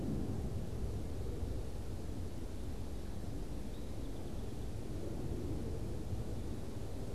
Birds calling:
Song Sparrow (Melospiza melodia)

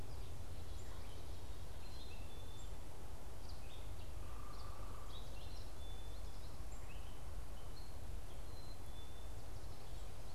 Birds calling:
unidentified bird, Black-capped Chickadee (Poecile atricapillus), American Goldfinch (Spinus tristis), Gray Catbird (Dumetella carolinensis)

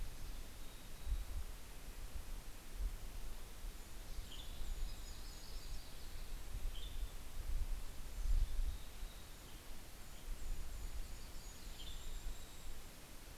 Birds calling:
Western Tanager (Piranga ludoviciana), Mountain Chickadee (Poecile gambeli), Golden-crowned Kinglet (Regulus satrapa), Yellow-rumped Warbler (Setophaga coronata), Red-breasted Nuthatch (Sitta canadensis)

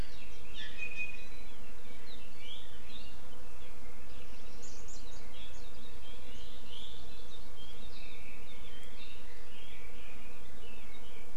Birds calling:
Warbling White-eye (Zosterops japonicus), Iiwi (Drepanis coccinea), Red-billed Leiothrix (Leiothrix lutea)

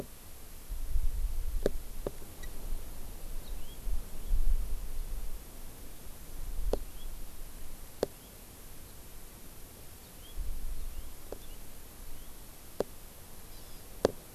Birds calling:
Hawaii Amakihi (Chlorodrepanis virens), House Finch (Haemorhous mexicanus)

